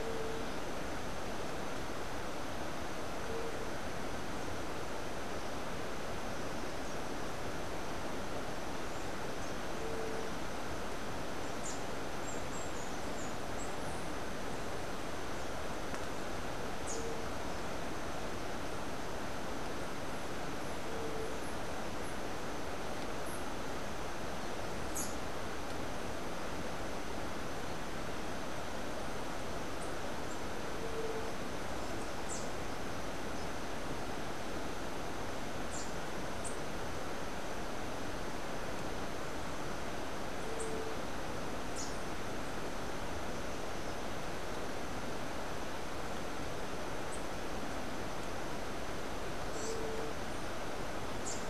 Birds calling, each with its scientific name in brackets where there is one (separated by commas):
Rufous-capped Warbler (Basileuterus rufifrons)